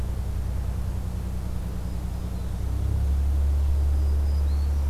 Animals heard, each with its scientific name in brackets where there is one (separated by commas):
Black-throated Green Warbler (Setophaga virens)